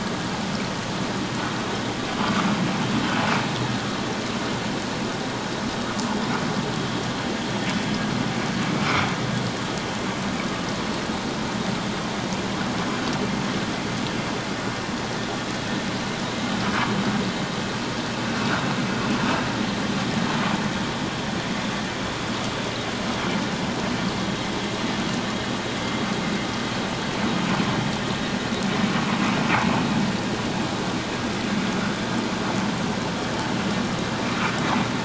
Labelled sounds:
8.8	9.1	vessel noise, 1.2 to 1.4 kHz

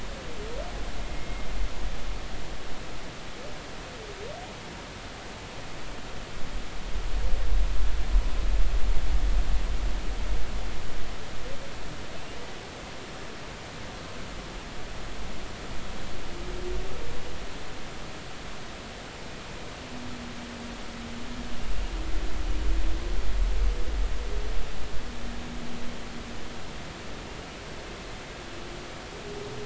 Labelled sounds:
1.0	1.5	humpback whale, 2.1 to 2.2 kHz

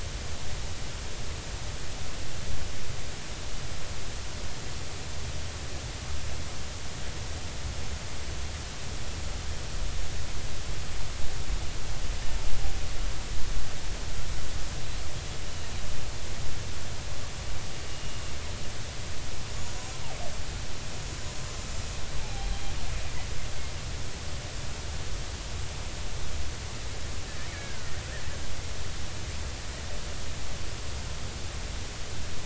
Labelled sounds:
17.9	18.2	killer whale, Bigg's (transient), 2.8 to 2.9 kHz
21.4	22.5	killer whale, Bigg's (transient), 0.80 to 7.1 kHz
27.5	27.9	killer whale, Bigg's (transient), 1.3 to 1.9 kHz

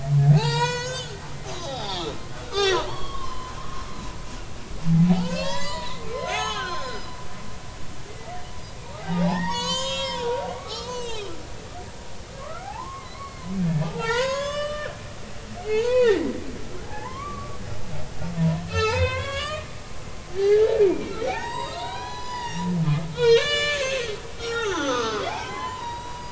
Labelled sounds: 0.3	1.1	humpback whale, 0.80 to 7.9 kHz
1.5	3.8	humpback whale, 0.80 to 6.7 kHz
5.1	7.1	humpback whale, 0.80 to 7.7 kHz
8.8	11.3	humpback whale, 0.80 to 7.8 kHz
12.4	13.5	humpback whale, 0.80 to 4.5 kHz
13.8	14.9	humpback whale, 0.80 to 7.8 kHz
15.6	16.3	humpback whale, 0.80 to 7.0 kHz
16.8	17.6	humpback whale, 0.80 to 2.4 kHz
18.4	22.7	humpback whale, 0.80 to 7.7 kHz
23.1	26.2	humpback whale, 0.80 to 7.7 kHz

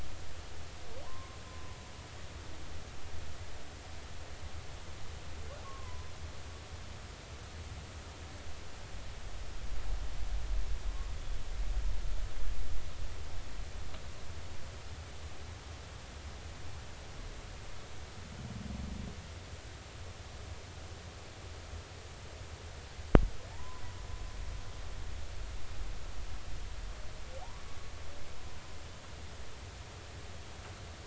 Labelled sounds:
1.0	1.8	humpback whale, 0.90 to 1.1 kHz
5.6	6.1	humpback whale, 0.96 to 1.2 kHz
23.5	23.8	humpback whale, 0.83 to 1.1 kHz

